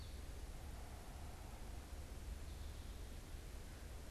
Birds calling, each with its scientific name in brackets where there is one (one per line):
Red-eyed Vireo (Vireo olivaceus)